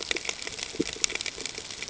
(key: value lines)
label: ambient
recorder: HydroMoth